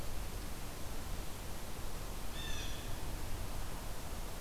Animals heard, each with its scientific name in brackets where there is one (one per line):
Blue Jay (Cyanocitta cristata)